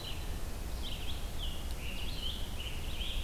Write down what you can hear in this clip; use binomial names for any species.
Vireo olivaceus, Piranga olivacea